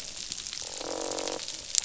{"label": "biophony, croak", "recorder": "SoundTrap 500"}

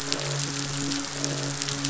{"label": "biophony, midshipman", "recorder": "SoundTrap 500"}
{"label": "biophony, croak", "recorder": "SoundTrap 500"}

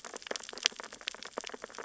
{"label": "biophony, sea urchins (Echinidae)", "recorder": "SoundTrap 600 or HydroMoth"}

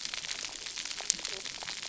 {"label": "biophony, cascading saw", "recorder": "SoundTrap 300"}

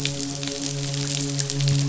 {"label": "biophony, midshipman", "recorder": "SoundTrap 500"}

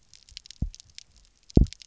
{"label": "biophony, double pulse", "recorder": "SoundTrap 300"}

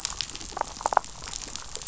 {"label": "biophony, damselfish", "recorder": "SoundTrap 500"}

